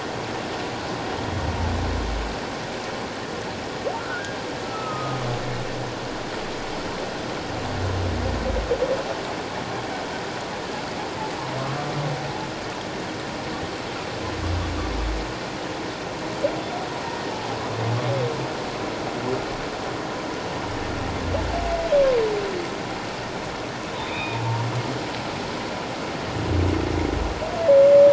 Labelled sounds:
4.0	4.4	humpback whale, 1.3 to 1.7 kHz
4.6	5.2	humpback whale, 1.2 to 1.4 kHz
24.0	24.4	humpback whale, 2.3 to 3.8 kHz

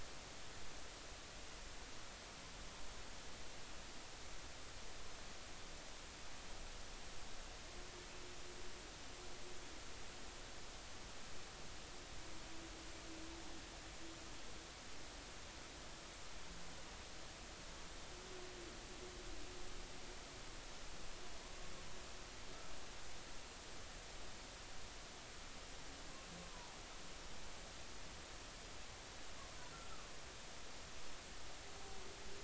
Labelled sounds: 26.5	26.8	humpback whale, 0.80 to 1.1 kHz

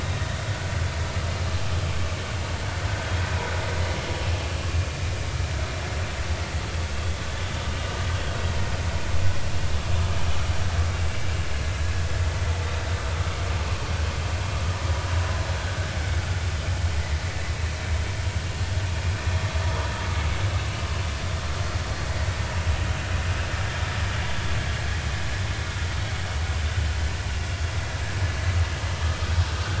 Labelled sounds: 19.6	19.9	vessel noise, 0.90 to 1.1 kHz

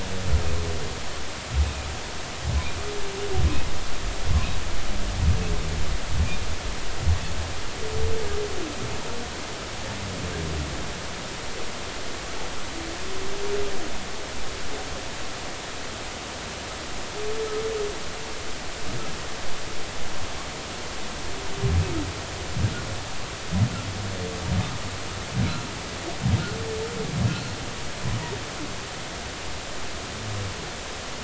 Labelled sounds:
1.6	1.9	humpback whale, 2.4 to 2.6 kHz

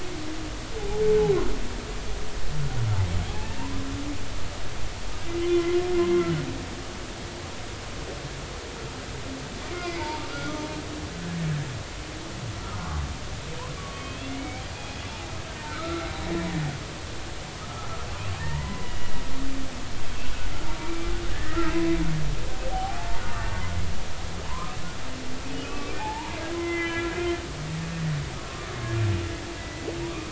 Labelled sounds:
0.8	1.0	humpback whale, 0.80 to 0.96 kHz
3.4	3.7	humpback whale, 2.5 to 2.8 kHz
5.5	5.8	humpback whale, 1.3 to 2.1 kHz
9.7	10.2	humpback whale, 0.86 to 2.2 kHz
13.8	15.0	humpback whale, 1.1 to 3.6 kHz
15.7	16.1	humpback whale, 1.2 to 1.4 kHz
17.6	17.9	humpback whale, 1.2 to 1.4 kHz
18.4	19.1	humpback whale, 0.86 to 3.0 kHz
20.8	21.7	humpback whale, 1.2 to 2.4 kHz
22.7	23.2	humpback whale, 0.80 to 0.96 kHz
24.5	24.7	humpback whale, 0.90 to 1.3 kHz
25.8	27.1	humpback whale, 0.80 to 2.5 kHz
29.6	30.3	humpback whale, 1.1 to 2.0 kHz

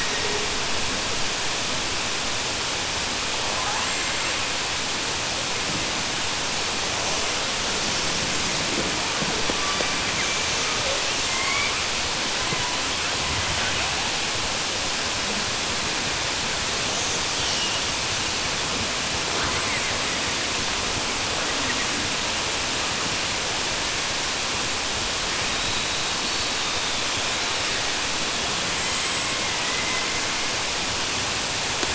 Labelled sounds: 29.5	30.1	killer whale, southern resident, 1.0 to 2.1 kHz

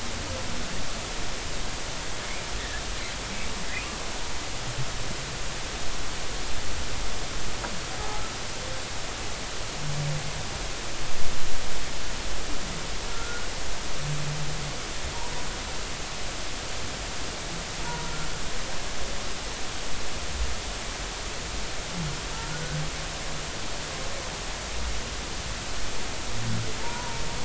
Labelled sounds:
3.7	4.0	humpback whale, 2.3 to 2.8 kHz
13.1	13.5	humpback whale, 1.3 to 1.5 kHz
17.8	18.1	humpback whale, 0.90 to 1.0 kHz
22.3	22.8	humpback whale, 1.3 to 1.6 kHz
26.8	27.2	humpback whale, 0.86 to 1.0 kHz

